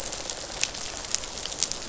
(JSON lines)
{"label": "biophony, rattle response", "recorder": "SoundTrap 500"}